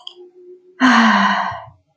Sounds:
Sigh